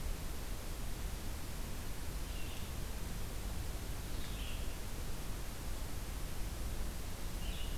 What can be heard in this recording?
Red-eyed Vireo